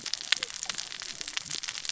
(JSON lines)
{"label": "biophony, cascading saw", "recorder": "SoundTrap 600 or HydroMoth"}